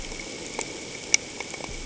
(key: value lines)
label: ambient
recorder: HydroMoth